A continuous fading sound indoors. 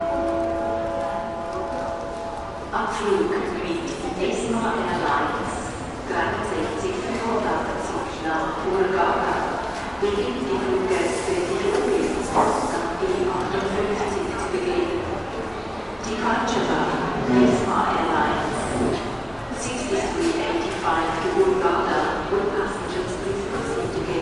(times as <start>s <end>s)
0.0s 2.7s